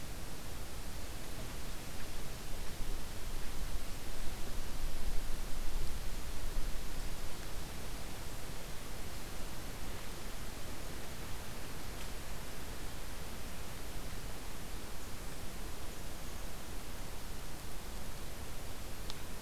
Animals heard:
forest ambience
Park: Katahdin Woods and Waters National Monument